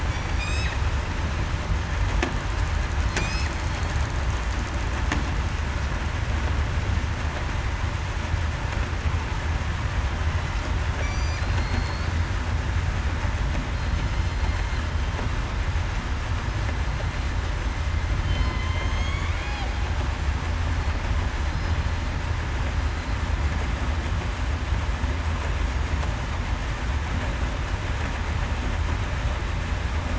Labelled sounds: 0.1	0.4	killer whale, southern resident, 5.6 to 5.8 kHz
3.2	3.9	killer whale, southern resident, 4.2 to 4.4 kHz
11.0	12.1	killer whale, southern resident, 4.1 to 7.4 kHz
16.8	17.1	killer whale, southern resident, 4.1 to 4.2 kHz
18.6	19.3	killer whale, southern resident, 2.1 to 6.9 kHz
21.4	21.8	killer whale, southern resident, 4.0 to 4.1 kHz

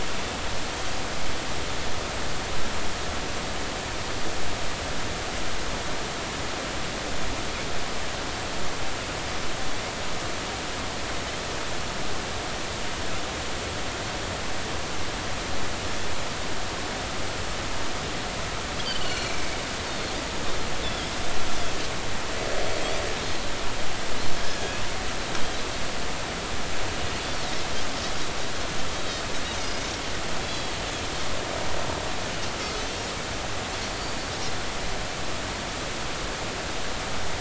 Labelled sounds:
18.8	19.3	Pacific white-sided dolphin, 2.8 to 4.5 kHz
19.9	20.1	Pacific white-sided dolphin, 4.2 to 4.5 kHz
20.8	21.1	Pacific white-sided dolphin, 3.1 to 3.6 kHz
24.4	24.8	Pacific white-sided dolphin, 1.6 to 1.8 kHz
29.6	30.8	Pacific white-sided dolphin, 3.2 to 6.6 kHz
32.7	33.0	Pacific white-sided dolphin, 4.2 to 4.5 kHz

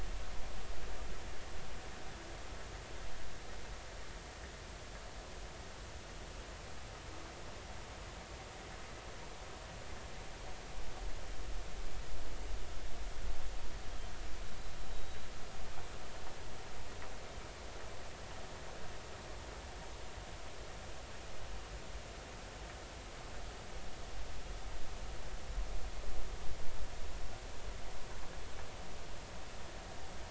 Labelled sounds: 14.9	15.3	humpback whale, 3.7 to 4.0 kHz

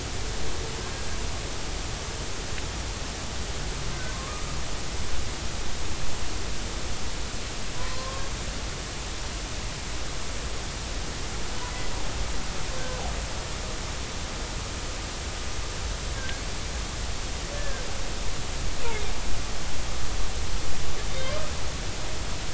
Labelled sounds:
4.1	4.4	humpback whale, 1.0 to 1.3 kHz
7.8	8.3	humpback whale, 0.96 to 1.2 kHz
16.2	16.4	humpback whale, 1.5 to 1.7 kHz
17.5	17.8	humpback whale, 1.5 to 1.8 kHz

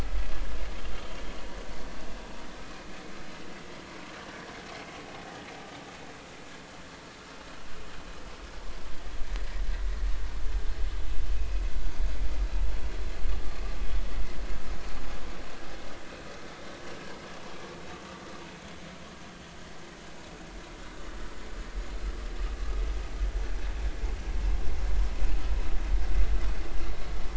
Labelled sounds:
0.9	1.2	vessel noise, 3.0 to 3.3 kHz

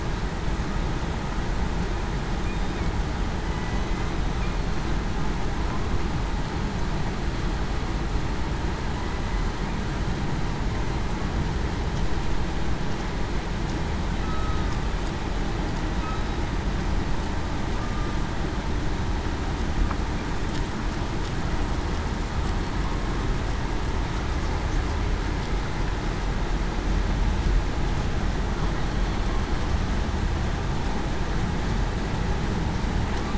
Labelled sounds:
3.4	3.8	killer whale, southern resident, 1.9 to 2.0 kHz
14.2	14.7	killer whale, southern resident, 1.2 to 1.3 kHz

